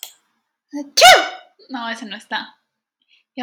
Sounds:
Sneeze